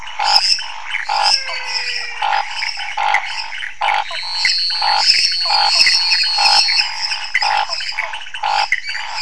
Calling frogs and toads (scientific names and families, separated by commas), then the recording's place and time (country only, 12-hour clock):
Dendropsophus minutus (Hylidae), Leptodactylus podicipinus (Leptodactylidae), Pithecopus azureus (Hylidae), Scinax fuscovarius (Hylidae), Physalaemus albonotatus (Leptodactylidae), Physalaemus nattereri (Leptodactylidae), Elachistocleis matogrosso (Microhylidae)
Brazil, 10:00pm